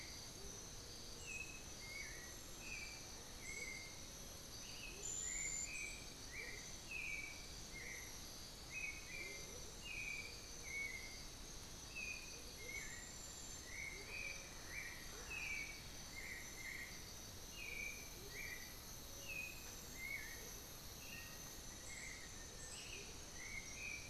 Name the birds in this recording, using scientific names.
Momotus momota, Turdus ignobilis, unidentified bird, Formicarius analis